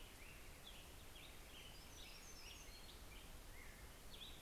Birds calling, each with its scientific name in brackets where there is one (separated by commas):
American Robin (Turdus migratorius), Hermit Warbler (Setophaga occidentalis)